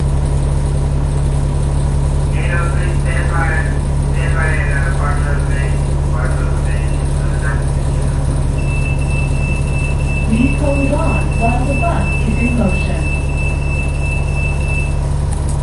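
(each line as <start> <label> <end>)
0.0 An engine is running nearby. 15.6
2.5 An unclear radio message is heard in the distance. 8.4
8.6 A loud beeping sound is heard in the distance. 15.6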